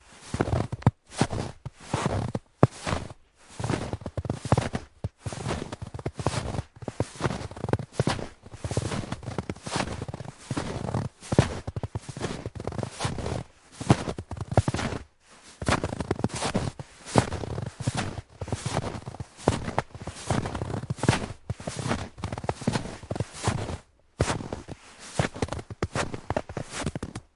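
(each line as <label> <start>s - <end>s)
A person walks with rubber boots, producing steady, crunchy, repetitive footsteps on snow outdoors. 0.0s - 27.4s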